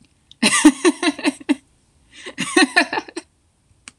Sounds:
Laughter